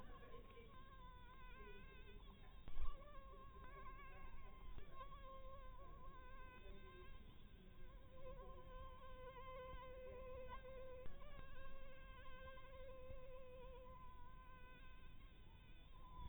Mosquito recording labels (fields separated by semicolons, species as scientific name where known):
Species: Anopheles harrisoni; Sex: female; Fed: blood-fed; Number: one; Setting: cup